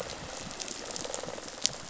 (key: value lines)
label: biophony, rattle response
recorder: SoundTrap 500